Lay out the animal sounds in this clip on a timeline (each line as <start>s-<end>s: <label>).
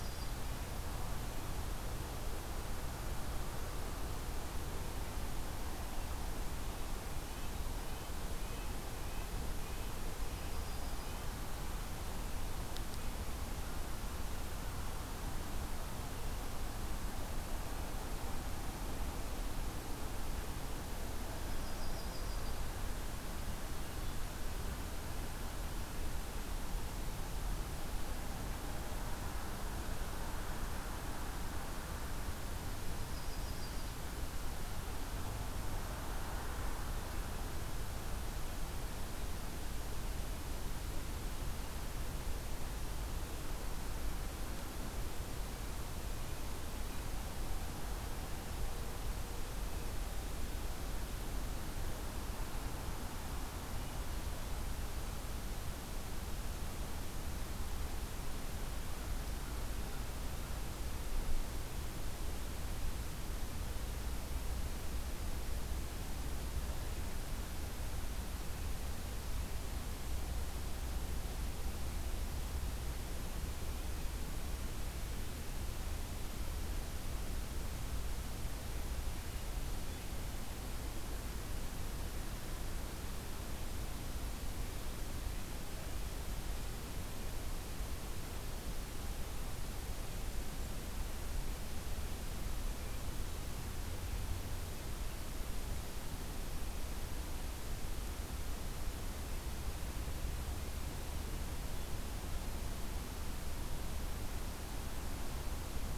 0.0s-0.5s: Yellow-rumped Warbler (Setophaga coronata)
7.0s-11.3s: Red-breasted Nuthatch (Sitta canadensis)
10.2s-11.2s: Yellow-rumped Warbler (Setophaga coronata)
21.4s-22.7s: Yellow-rumped Warbler (Setophaga coronata)
32.8s-34.0s: Yellow-rumped Warbler (Setophaga coronata)